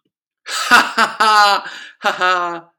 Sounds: Laughter